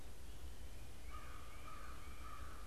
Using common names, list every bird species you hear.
American Crow